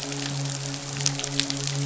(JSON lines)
{"label": "biophony, midshipman", "recorder": "SoundTrap 500"}